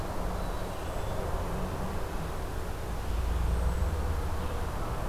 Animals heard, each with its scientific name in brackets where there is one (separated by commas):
Red-breasted Nuthatch (Sitta canadensis), Cedar Waxwing (Bombycilla cedrorum)